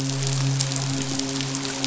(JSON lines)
{"label": "biophony, midshipman", "recorder": "SoundTrap 500"}